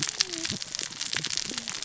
{"label": "biophony, cascading saw", "recorder": "SoundTrap 600 or HydroMoth"}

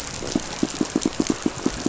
{"label": "biophony, pulse", "recorder": "SoundTrap 500"}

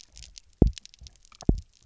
{"label": "biophony, double pulse", "recorder": "SoundTrap 300"}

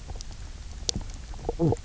{"label": "biophony, knock croak", "recorder": "SoundTrap 300"}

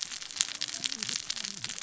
{"label": "biophony, cascading saw", "recorder": "SoundTrap 600 or HydroMoth"}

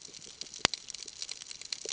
{"label": "ambient", "recorder": "HydroMoth"}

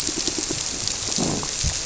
{"label": "biophony, squirrelfish (Holocentrus)", "recorder": "SoundTrap 300"}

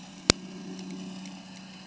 {"label": "anthrophony, boat engine", "recorder": "HydroMoth"}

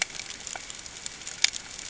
{"label": "ambient", "recorder": "HydroMoth"}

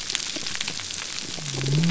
{"label": "biophony", "recorder": "SoundTrap 300"}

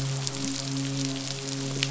{"label": "biophony, midshipman", "recorder": "SoundTrap 500"}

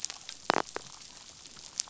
{"label": "biophony, damselfish", "recorder": "SoundTrap 500"}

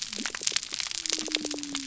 {"label": "biophony", "recorder": "SoundTrap 300"}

